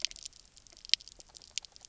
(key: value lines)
label: biophony, knock croak
recorder: SoundTrap 300